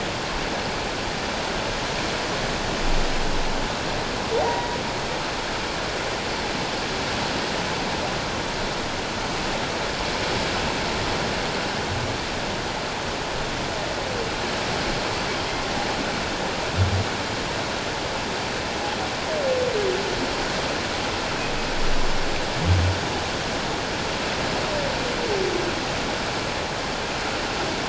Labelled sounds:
4.4	4.7	humpback whale, 1.8 to 2.0 kHz

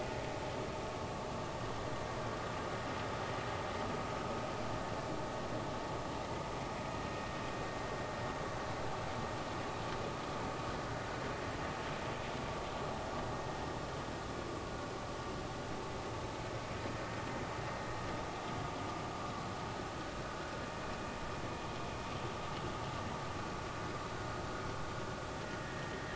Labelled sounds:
25.6	26.0	vessel noise, 1.7 to 2.0 kHz

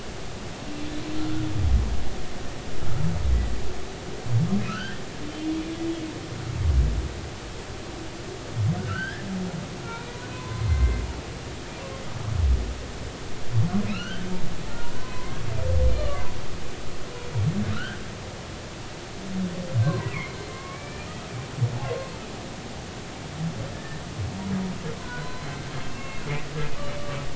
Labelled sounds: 1.2	1.5	humpback whale, 1.3 to 1.5 kHz
4.6	5.0	humpback whale, 1.2 to 3.3 kHz
8.8	9.3	humpback whale, 1.2 to 3.3 kHz
10.3	11.0	humpback whale, 0.86 to 4.2 kHz
13.9	14.3	humpback whale, 1.2 to 3.2 kHz
15.0	16.2	humpback whale, 0.96 to 1.9 kHz
17.7	18.0	humpback whale, 1.2 to 1.8 kHz
19.8	21.1	humpback whale, 0.90 to 2.5 kHz
21.9	22.2	humpback whale, 4.2 to 4.4 kHz
23.7	24.0	humpback whale, 1.7 to 1.9 kHz
25.0	26.3	humpback whale, 0.93 to 4.2 kHz

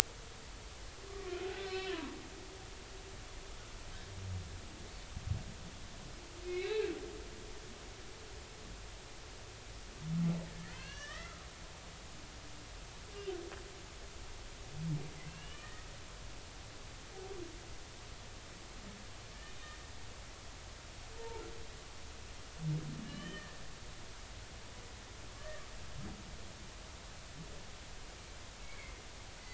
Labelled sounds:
1.1	1.3	humpback whale, 1.1 to 1.2 kHz
1.6	2.0	humpback whale, 2.6 to 4.3 kHz
6.4	6.9	humpback whale, 1.5 to 4.1 kHz
10.5	11.4	humpback whale, 1.1 to 3.6 kHz
15.3	15.7	humpback whale, 1.6 to 3.1 kHz
21.2	21.4	humpback whale, 0.83 to 0.99 kHz
23.0	23.6	humpback whale, 1.7 to 3.1 kHz
25.4	25.6	humpback whale, 1.7 to 1.9 kHz
28.6	29.0	humpback whale, 2.0 to 2.4 kHz

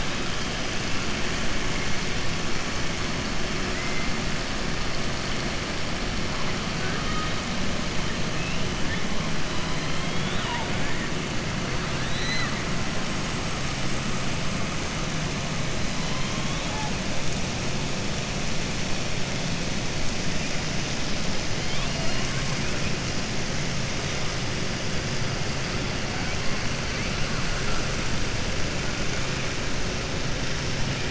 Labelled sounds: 6.7	7.3	killer whale, southern resident, 1.2 to 2.2 kHz
9.7	11.0	killer whale, southern resident, 0.76 to 4.1 kHz
21.6	22.2	killer whale, southern resident, 2.2 to 4.9 kHz

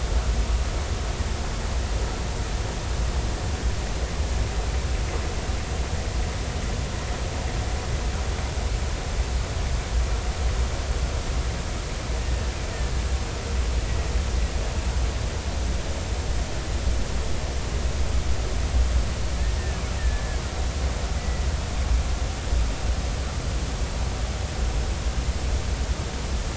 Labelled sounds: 12.2	12.5	killer whale, Bigg's (transient), 1.7 to 1.9 kHz
20.0	20.4	killer whale, Bigg's (transient), 1.6 to 1.9 kHz
21.2	21.4	killer whale, Bigg's (transient), 1.9 to 2.1 kHz

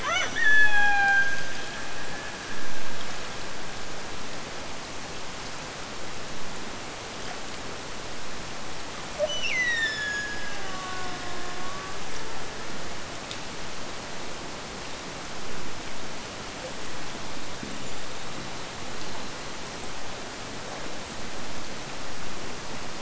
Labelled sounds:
0.0	4.0	killer whale, Bigg's (transient), Gulf of Alaska transient, 0.27 to 6.8 kHz
9.1	13.0	killer whale, Bigg's (transient), Gulf of Alaska transient, 0.23 to 8.0 kHz

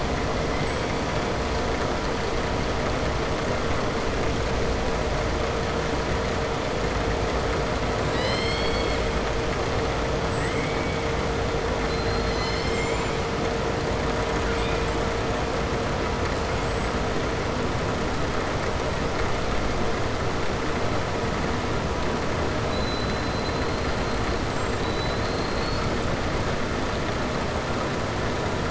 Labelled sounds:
24.7	25.9	killer whale, southern resident, 3.9 to 5.2 kHz

